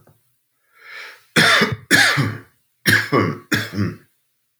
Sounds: Cough